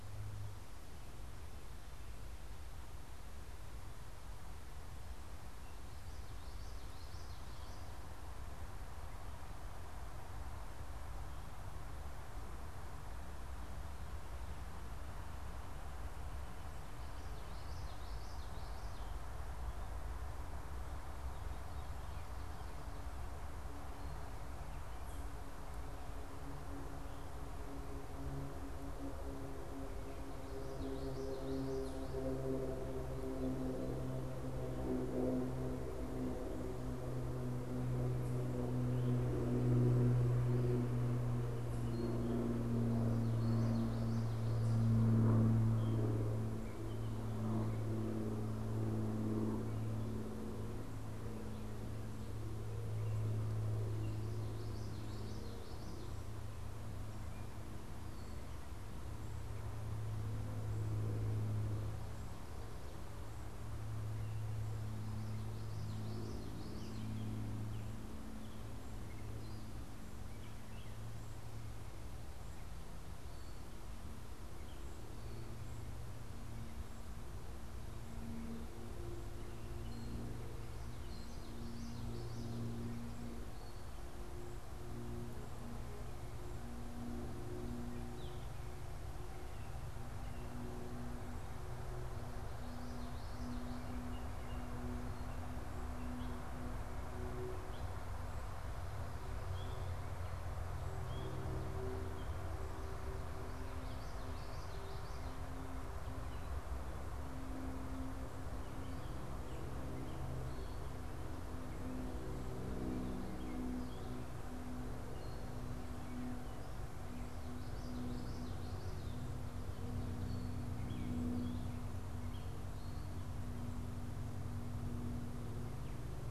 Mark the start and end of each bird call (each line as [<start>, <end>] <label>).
[6.17, 8.07] Common Yellowthroat (Geothlypis trichas)
[17.37, 19.17] Common Yellowthroat (Geothlypis trichas)
[30.37, 32.27] Common Yellowthroat (Geothlypis trichas)
[43.07, 44.97] Common Yellowthroat (Geothlypis trichas)
[54.47, 56.27] Common Yellowthroat (Geothlypis trichas)
[65.27, 67.07] Common Yellowthroat (Geothlypis trichas)
[66.67, 71.47] Gray Catbird (Dumetella carolinensis)
[73.07, 75.17] Gray Catbird (Dumetella carolinensis)
[79.37, 84.07] Gray Catbird (Dumetella carolinensis)
[80.97, 82.77] Common Yellowthroat (Geothlypis trichas)
[87.77, 89.77] Gray Catbird (Dumetella carolinensis)
[92.37, 93.87] Common Yellowthroat (Geothlypis trichas)
[93.07, 102.87] Gray Catbird (Dumetella carolinensis)
[103.77, 105.17] Common Yellowthroat (Geothlypis trichas)
[108.57, 117.37] Gray Catbird (Dumetella carolinensis)
[117.57, 119.37] Common Yellowthroat (Geothlypis trichas)
[120.07, 126.31] Gray Catbird (Dumetella carolinensis)